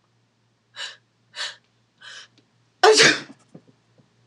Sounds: Sneeze